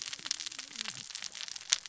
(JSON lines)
{"label": "biophony, cascading saw", "recorder": "SoundTrap 600 or HydroMoth"}